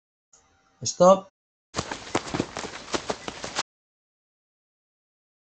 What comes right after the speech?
running